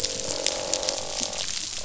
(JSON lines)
{"label": "biophony, croak", "recorder": "SoundTrap 500"}